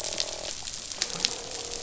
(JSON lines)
{"label": "biophony, croak", "recorder": "SoundTrap 500"}